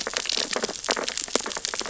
{"label": "biophony, sea urchins (Echinidae)", "recorder": "SoundTrap 600 or HydroMoth"}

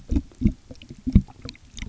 {"label": "geophony, waves", "recorder": "SoundTrap 300"}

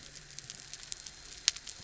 {"label": "anthrophony, boat engine", "recorder": "SoundTrap 300"}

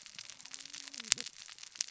{"label": "biophony, cascading saw", "recorder": "SoundTrap 600 or HydroMoth"}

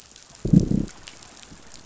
{"label": "biophony, growl", "recorder": "SoundTrap 500"}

